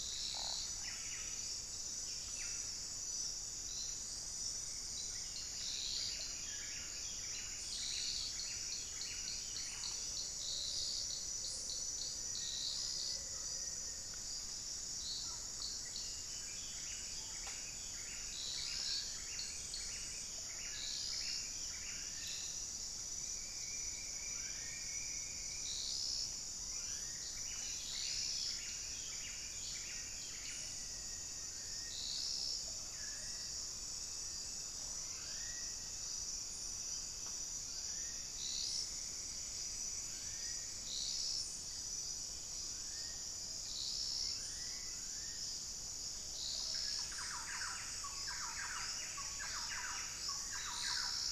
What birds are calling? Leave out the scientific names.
Buff-breasted Wren, unidentified bird, Black-faced Antthrush, Black-faced Cotinga, Thrush-like Wren